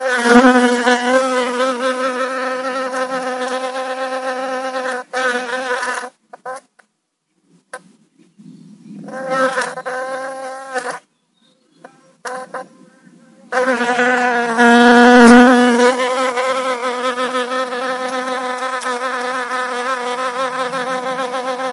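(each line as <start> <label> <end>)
0.0 A bee is making persistent loud buzzing noises while flying indoors. 21.7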